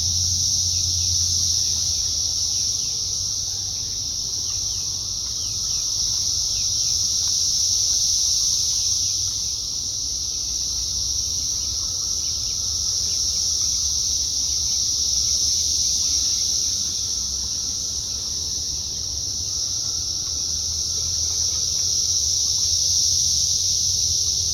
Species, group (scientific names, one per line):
Magicicada cassini
Cicadidae